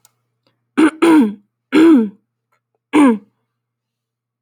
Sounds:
Throat clearing